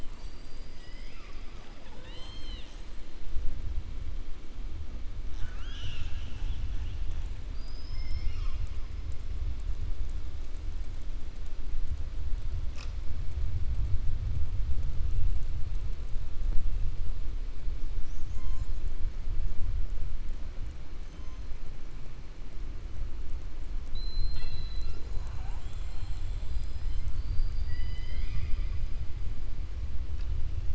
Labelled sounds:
5.2	6.6	killer whale, 0.87 to 7.0 kHz
7.4	8.8	killer whale, 1.1 to 7.7 kHz

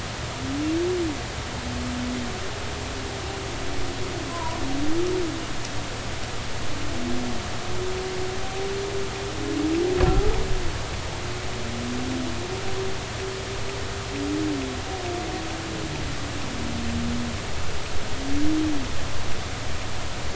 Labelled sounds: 4.3	4.6	humpback whale, 0.90 to 1.1 kHz

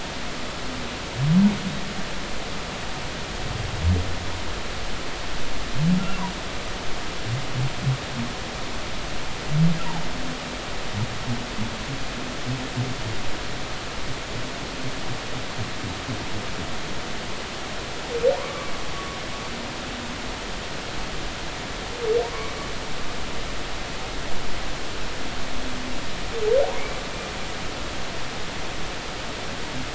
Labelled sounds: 18.3	18.7	humpback whale, 0.86 to 1.2 kHz

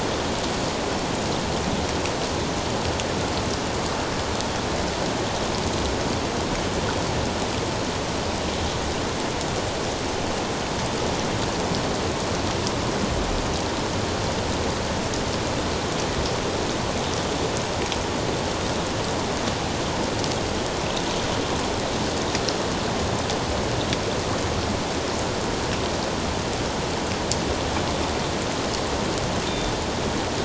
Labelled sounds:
29.5	29.7	Pacific white-sided dolphin, 3.5 to 3.7 kHz

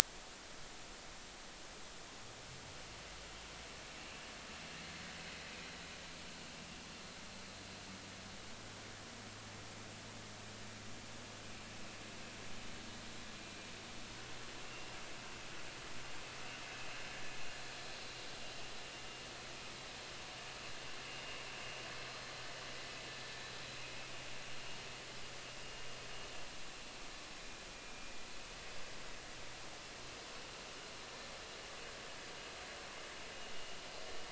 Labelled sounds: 14.6	15.0	vessel noise, 2.7 to 2.8 kHz
27.7	28.1	vessel noise, 2.37 to 2.43 kHz
31.0	31.3	vessel noise, 1.7 to 1.9 kHz

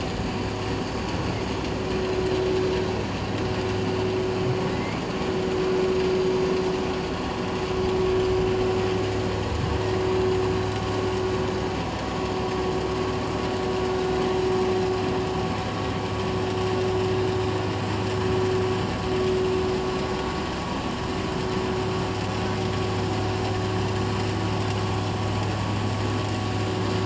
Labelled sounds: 4.7	5.0	humpback whale, 1.9 to 2.3 kHz

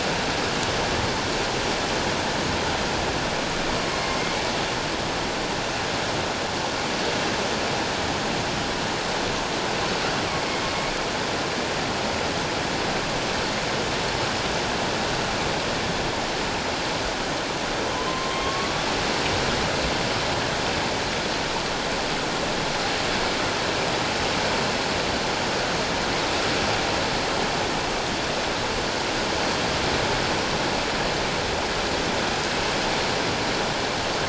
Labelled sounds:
3.9	4.2	killer whale, northern resident, A clan, AA subclan, 2.1 to 2.2 kHz
18.1	18.7	killer whale, northern resident, A clan, AA subclan, 1.0 to 3.2 kHz

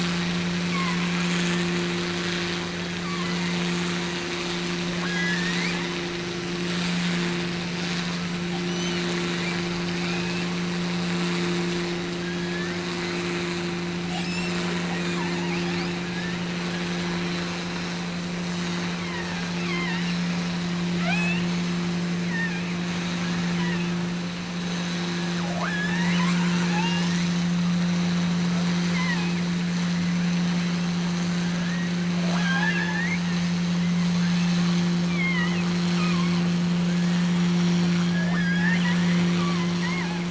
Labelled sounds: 0.6	1.7	killer whale, offshore, 0.82 to 2.8 kHz
3.0	3.7	killer whale, offshore, 0.84 to 3.5 kHz
5.0	5.8	killer whale, offshore, 1.1 to 6.0 kHz
8.7	9.2	killer whale, offshore, 2.7 to 6.3 kHz
9.9	10.6	killer whale, offshore, 1.2 to 2.8 kHz
12.2	12.9	killer whale, offshore, 1.4 to 3.7 kHz
14.0	14.7	killer whale, offshore, 2.0 to 8.0 kHz
15.0	16.5	killer whale, offshore, 0.64 to 5.6 kHz
18.8	20.5	killer whale, offshore, 0.48 to 5.1 kHz
20.9	21.6	killer whale, offshore, 0.55 to 8.0 kHz
22.2	22.8	killer whale, offshore, 0.70 to 4.7 kHz
23.2	24.0	killer whale, offshore, 0.64 to 3.3 kHz
25.3	27.4	killer whale, offshore, 0.52 to 6.8 kHz
28.9	29.5	killer whale, offshore, 0.64 to 3.2 kHz
31.2	33.3	killer whale, offshore, 0.48 to 5.4 kHz
34.1	36.5	killer whale, offshore, 0.75 to 5.2 kHz
36.8	37.5	killer whale, offshore, 1.3 to 3.4 kHz
37.9	40.2	killer whale, offshore, 0.41 to 5.8 kHz

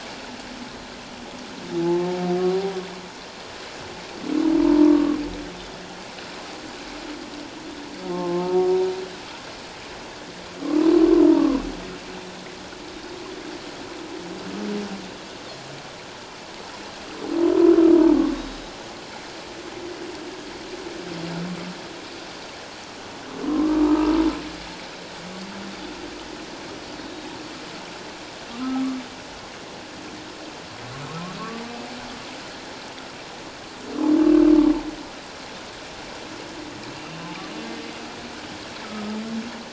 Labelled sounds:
1.8	2.2	humpback whale, 0.81 to 0.94 kHz
4.6	5.0	humpback whale, 0.88 to 1.2 kHz
8.1	8.7	humpback whale, 0.84 to 1.2 kHz
10.6	11.6	humpback whale, 0.94 to 1.3 kHz
12.9	13.2	Pacific white-sided dolphin, 3.7 to 3.8 kHz
23.4	24.1	humpback whale, 0.97 to 1.3 kHz
31.4	31.6	humpback whale, 1.0 to 1.2 kHz

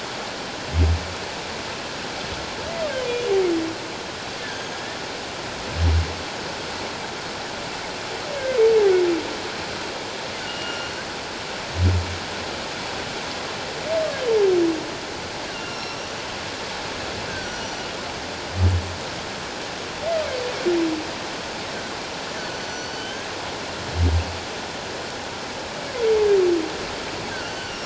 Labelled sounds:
4.4	4.8	humpback whale, 1.5 to 6.6 kHz
10.4	10.9	humpback whale, 1.3 to 2.9 kHz
15.5	16.2	humpback whale, 2.7 to 5.9 kHz
17.3	17.9	humpback whale, 1.4 to 5.9 kHz
22.5	23.3	humpback whale, 1.5 to 6.1 kHz

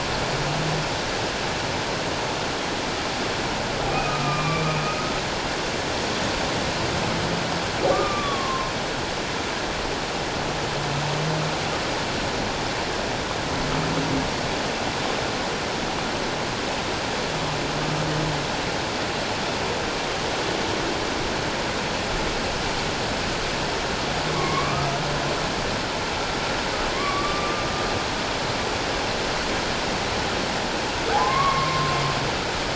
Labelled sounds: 3.8	4.7	humpback whale, 1.1 to 2.5 kHz
7.9	8.7	humpback whale, 0.97 to 1.3 kHz
24.4	24.9	humpback whale, 1.0 to 2.3 kHz
26.9	27.6	humpback whale, 1.0 to 2.3 kHz
31.2	31.9	humpback whale, 0.97 to 2.3 kHz

